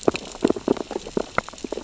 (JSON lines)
{"label": "biophony, sea urchins (Echinidae)", "recorder": "SoundTrap 600 or HydroMoth"}